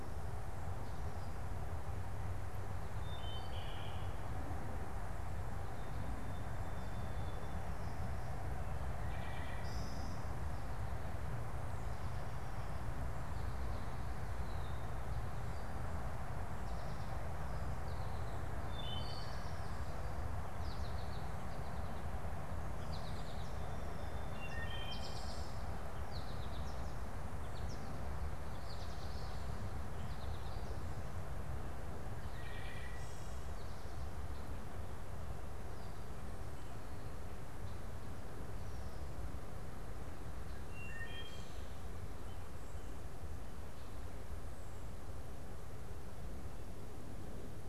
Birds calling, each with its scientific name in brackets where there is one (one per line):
Song Sparrow (Melospiza melodia)
Wood Thrush (Hylocichla mustelina)
American Goldfinch (Spinus tristis)